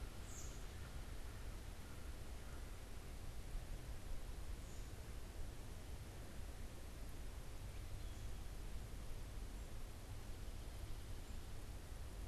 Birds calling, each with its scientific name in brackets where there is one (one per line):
Wood Thrush (Hylocichla mustelina)
American Robin (Turdus migratorius)
American Crow (Corvus brachyrhynchos)